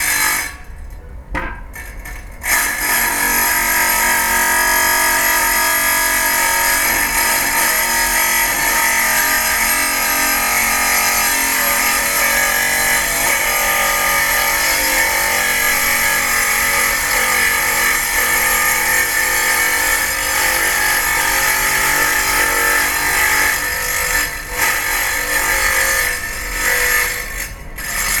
How fast does the tool work?
fast